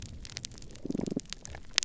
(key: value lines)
label: biophony, damselfish
recorder: SoundTrap 300